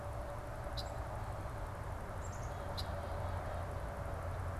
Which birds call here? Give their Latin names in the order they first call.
Agelaius phoeniceus, Poecile atricapillus